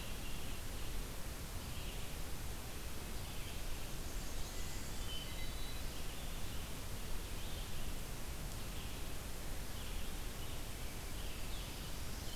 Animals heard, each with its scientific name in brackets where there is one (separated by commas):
Blackburnian Warbler (Setophaga fusca), Black-throated Green Warbler (Setophaga virens), Hermit Thrush (Catharus guttatus), Red-eyed Vireo (Vireo olivaceus)